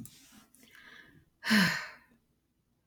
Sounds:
Sigh